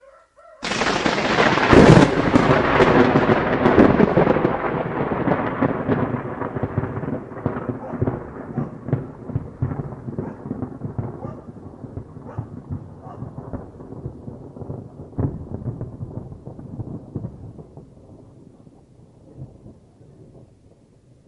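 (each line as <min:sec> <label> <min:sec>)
0:00.0 A rooster crows. 0:00.6
0:00.6 An electric thunder sound. 0:21.3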